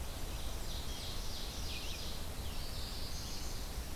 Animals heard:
Red-eyed Vireo (Vireo olivaceus)
Chestnut-sided Warbler (Setophaga pensylvanica)
Ovenbird (Seiurus aurocapilla)

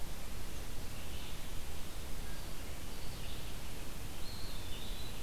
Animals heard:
Eastern Wood-Pewee (Contopus virens)

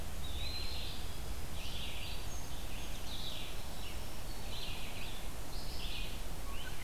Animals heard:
Red-winged Blackbird (Agelaius phoeniceus)
Black-throated Green Warbler (Setophaga virens)
Red-eyed Vireo (Vireo olivaceus)
Song Sparrow (Melospiza melodia)
Eastern Wood-Pewee (Contopus virens)

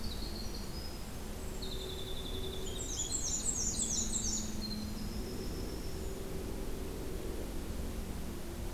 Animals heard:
Black-and-white Warbler (Mniotilta varia)
Winter Wren (Troglodytes hiemalis)

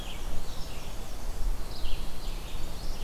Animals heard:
Red-eyed Vireo (Vireo olivaceus)
Chestnut-sided Warbler (Setophaga pensylvanica)
Black-and-white Warbler (Mniotilta varia)

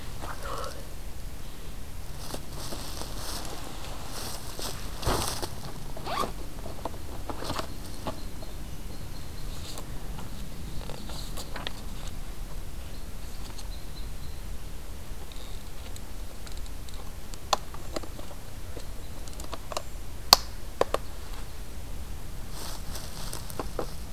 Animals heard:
Red Squirrel (Tamiasciurus hudsonicus)

